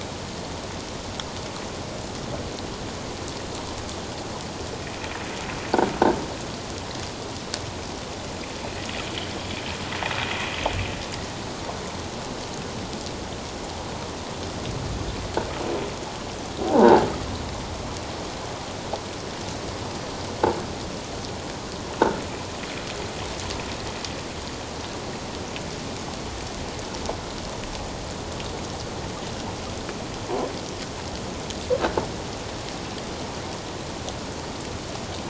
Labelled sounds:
16.6	17.0	croaking sound likely from a nearby submerged object, 0.78 to 1.0 kHz

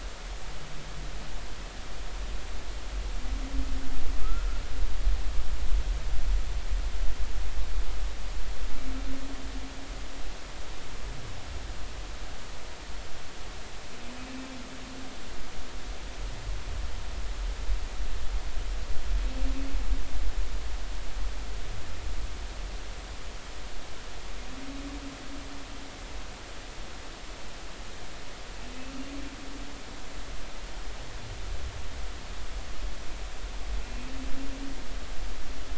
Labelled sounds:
4.2	4.6	humpback whale, 1.2 to 1.4 kHz

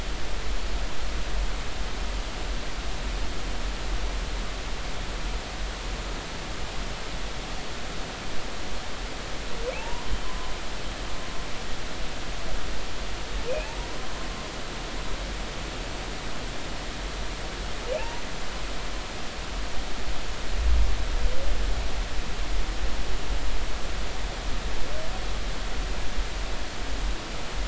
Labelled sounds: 9.8	10.5	humpback whale, 0.80 to 1.1 kHz
13.5	13.7	humpback whale, 2.4 to 2.7 kHz
18.0	18.2	humpback whale, 0.83 to 1.0 kHz

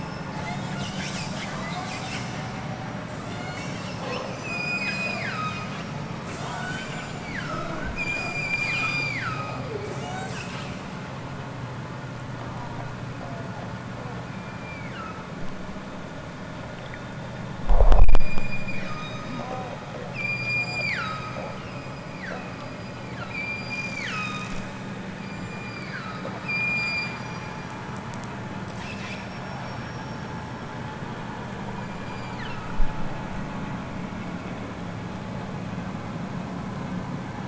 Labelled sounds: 0.3	1.0	killer whale, southern Alaska resident, 1.2 to 8.0 kHz
1.6	2.1	killer whale, southern Alaska resident, 1.5 to 8.0 kHz
3.3	3.8	killer whale, southern Alaska resident, 1.1 to 8.0 kHz
4.3	5.7	killer whale, southern Alaska resident, 0.87 to 8.0 kHz
6.2	10.7	killer whale, southern Alaska resident, 0.37 to 8.0 kHz
14.3	15.3	killer whale, southern Alaska resident, 1.1 to 5.0 kHz
18.2	19.4	killer whale, southern Alaska resident, 0.87 to 8.0 kHz
20.1	24.7	killer whale, southern Alaska resident, 0.87 to 8.0 kHz
25.2	27.5	killer whale, southern Alaska resident, 0.87 to 7.8 kHz
31.7	32.8	killer whale, southern Alaska resident, 0.83 to 8.0 kHz

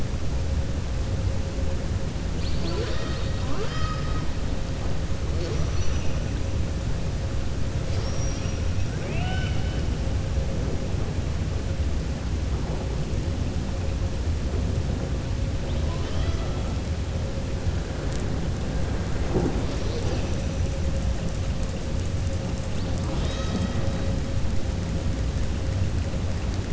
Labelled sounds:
8.9	9.8	killer whale, southern resident, 0.59 to 5.3 kHz
15.8	16.5	killer whale, southern resident, 0.64 to 6.0 kHz

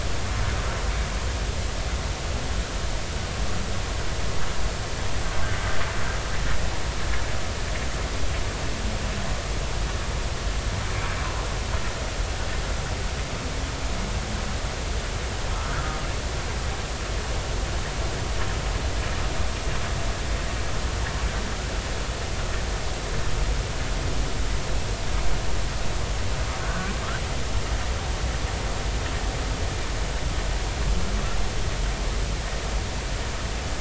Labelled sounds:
5.4	5.7	humpback whale, 1.4 to 1.6 kHz
26.6	26.9	humpback whale, 1.4 to 1.6 kHz

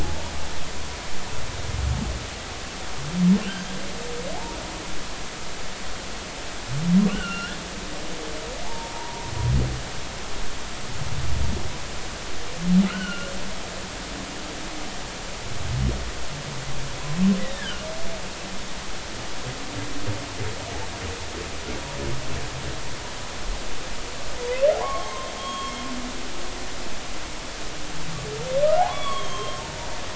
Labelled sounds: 0.0	0.3	humpback whale, 0.80 to 0.99 kHz
3.4	3.6	humpback whale, 2.5 to 3.2 kHz
7.1	7.6	humpback whale, 1.3 to 5.6 kHz
8.6	9.3	humpback whale, 0.80 to 1.0 kHz
12.9	13.3	humpback whale, 1.2 to 3.1 kHz
17.5	17.8	humpback whale, 1.4 to 1.9 kHz
24.8	25.7	humpback whale, 0.80 to 3.4 kHz
28.9	29.9	humpback whale, 0.86 to 3.5 kHz

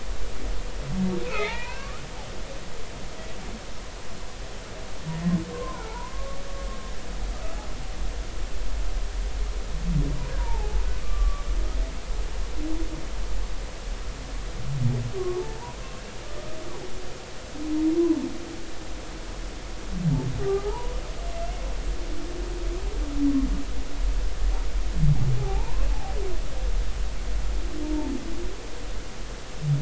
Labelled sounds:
1.2	2.1	humpback whale, 0.83 to 4.3 kHz
5.5	6.4	humpback whale, 0.83 to 1.5 kHz
10.4	11.4	humpback whale, 0.80 to 1.2 kHz
15.2	15.8	humpback whale, 0.83 to 1.2 kHz
20.4	20.9	humpback whale, 0.80 to 1.3 kHz
25.4	26.1	humpback whale, 0.80 to 1.1 kHz
27.8	28.1	humpback whale, 0.83 to 0.96 kHz

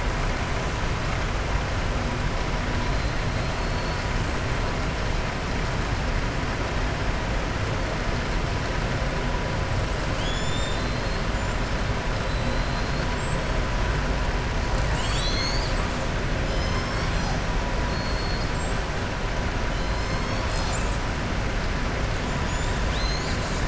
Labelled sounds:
3.4	4.1	killer whale, southern resident, 3.9 to 5.2 kHz
16.4	17.4	killer whale, southern resident, 3.1 to 7.1 kHz
17.9	18.5	killer whale, southern resident, 4.3 to 5.2 kHz
22.4	22.8	killer whale, southern resident, 6.6 to 7.5 kHz

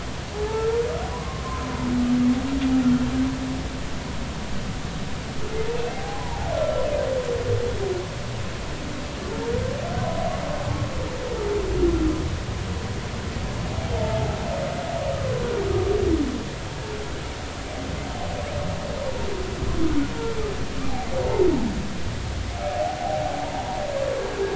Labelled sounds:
0.4	0.8	humpback whale, 1.2 to 1.4 kHz
1.1	1.4	humpback whale, 0.93 to 1.2 kHz
5.9	6.9	humpback whale, 0.80 to 1.4 kHz
13.9	14.4	humpback whale, 0.80 to 3.2 kHz

